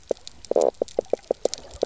{"label": "biophony, knock croak", "recorder": "SoundTrap 300"}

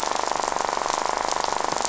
{"label": "biophony, rattle", "recorder": "SoundTrap 500"}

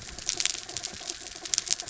{"label": "anthrophony, mechanical", "recorder": "SoundTrap 300"}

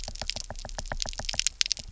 {"label": "biophony, knock", "recorder": "SoundTrap 300"}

